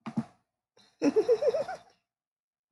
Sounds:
Laughter